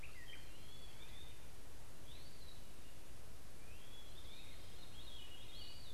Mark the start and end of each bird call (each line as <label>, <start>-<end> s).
Eastern Wood-Pewee (Contopus virens), 0.0-5.9 s
Great Crested Flycatcher (Myiarchus crinitus), 0.0-5.9 s
Veery (Catharus fuscescens), 0.0-5.9 s